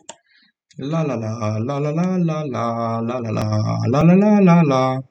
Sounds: Sigh